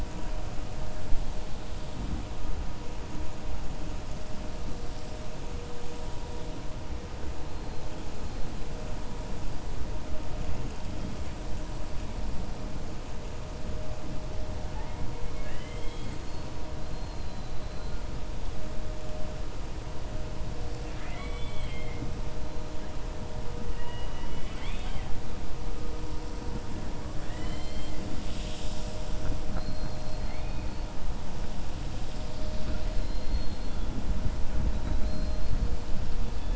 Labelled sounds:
15.3	16.5	killer whale, 1.6 to 4.9 kHz
20.8	22.1	killer whale, 0.71 to 4.4 kHz
23.7	25.1	killer whale, 0.80 to 4.5 kHz
27.1	28.0	killer whale, 1.0 to 5.0 kHz
32.4	33.8	killer whale, 3.0 to 5.1 kHz
34.8	35.5	killer whale, 3.9 to 4.9 kHz

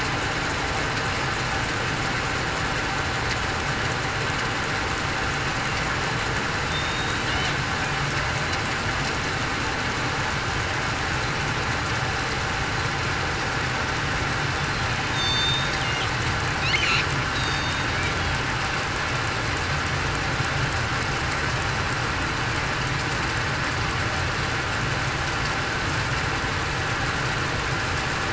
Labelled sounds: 6.7	7.2	killer whale, southern resident, 3.6 to 3.9 kHz
15.1	15.7	killer whale, southern resident, 3.6 to 4.6 kHz
17.3	17.9	killer whale, southern resident, 3.6 to 6.7 kHz

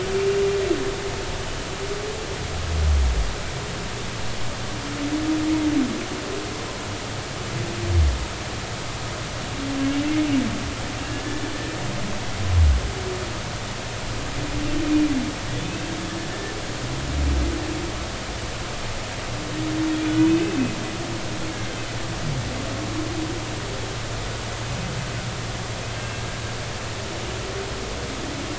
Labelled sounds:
11.1	11.5	humpback whale, 1.6 to 1.8 kHz
15.6	15.9	humpback whale, 2.5 to 2.7 kHz
20.3	20.7	humpback whale, 2.5 to 2.6 kHz
26.0	26.2	humpback whale, 2.6 to 2.7 kHz

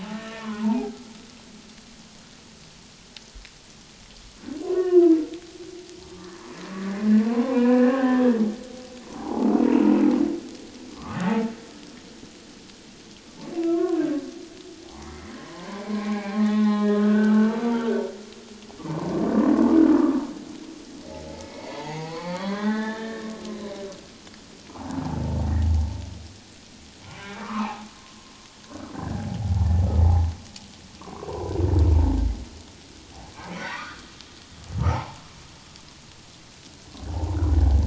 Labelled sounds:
0.1	1.0	humpback whale, 0.78 to 1.9 kHz
4.6	5.2	humpback whale, 0.91 to 1.9 kHz
6.1	6.5	humpback whale, 1.0 to 1.8 kHz
7.2	8.2	humpback whale, 0.78 to 2.6 kHz
9.1	9.6	humpback whale, 0.78 to 1.0 kHz
10.9	11.5	humpback whale, 0.84 to 2.0 kHz
13.6	14.2	humpback whale, 0.97 to 1.7 kHz
14.8	17.9	humpback whale, 0.78 to 3.8 kHz
21.3	23.3	humpback whale, 0.78 to 6.8 kHz
24.7	25.0	humpback whale, 0.78 to 1.0 kHz
25.7	25.9	humpback whale, 0.78 to 0.97 kHz
27.2	27.9	humpback whale, 0.78 to 2.7 kHz
28.9	29.3	humpback whale, 1.5 to 1.8 kHz
31.0	31.5	humpback whale, 0.88 to 1.2 kHz
33.5	35.2	humpback whale, 0.78 to 2.2 kHz

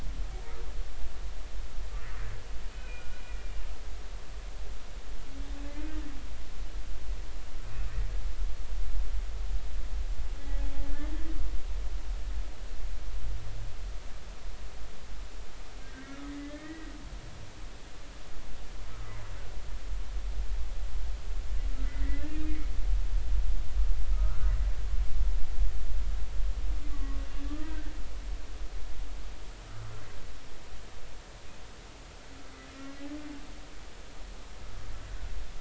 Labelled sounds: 2.7	3.2	humpback whale, 1.4 to 2.6 kHz
10.9	11.1	humpback whale, 1.7 to 1.9 kHz
15.8	17.0	humpback whale, 1.5 to 2.0 kHz
21.8	22.7	humpback whale, 1.9 to 2.5 kHz
24.1	24.4	humpback whale, 1.2 to 1.5 kHz
26.9	27.9	humpback whale, 1.1 to 1.7 kHz

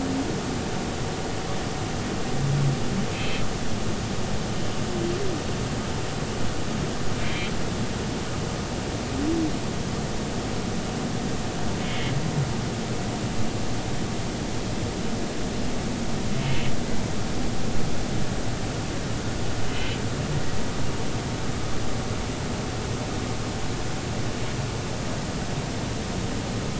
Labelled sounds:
3.1	3.4	humpback whale, 2.5 to 3.3 kHz
7.1	7.5	humpback whale, 2.0 to 3.3 kHz
19.7	20.0	humpback whale, 2.9 to 3.1 kHz

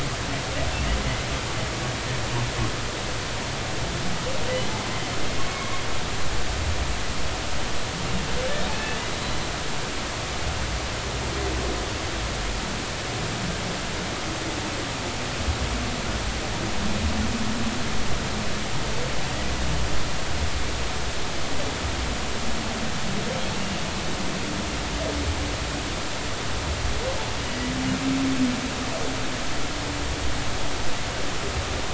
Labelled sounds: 5.5	5.8	humpback whale, 1.0 to 2.2 kHz
8.7	9.0	humpback whale, 2.5 to 2.7 kHz
23.5	23.9	humpback whale, 2.7 to 2.9 kHz

